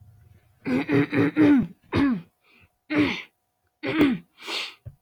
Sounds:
Throat clearing